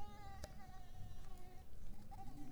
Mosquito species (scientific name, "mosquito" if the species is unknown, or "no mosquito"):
Mansonia africanus